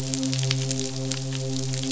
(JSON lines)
{"label": "biophony, midshipman", "recorder": "SoundTrap 500"}